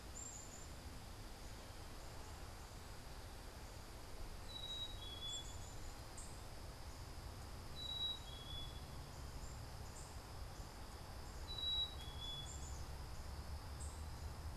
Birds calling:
unidentified bird, Black-capped Chickadee (Poecile atricapillus)

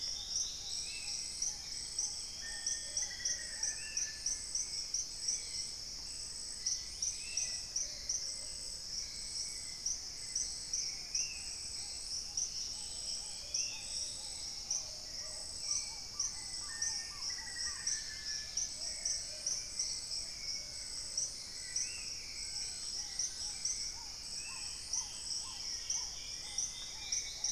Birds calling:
Paradise Tanager (Tangara chilensis), Dusky-capped Greenlet (Pachysylvia hypoxantha), Black-faced Antthrush (Formicarius analis), Dusky-throated Antshrike (Thamnomanes ardesiacus), Long-billed Woodcreeper (Nasica longirostris), Long-winged Antwren (Myrmotherula longipennis), Hauxwell's Thrush (Turdus hauxwelli), Spot-winged Antshrike (Pygiptila stellaris), Black-tailed Trogon (Trogon melanurus), Plumbeous Pigeon (Patagioenas plumbea)

